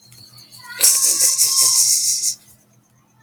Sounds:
Sigh